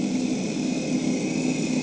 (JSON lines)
{"label": "anthrophony, boat engine", "recorder": "HydroMoth"}